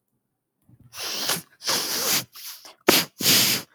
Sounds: Sneeze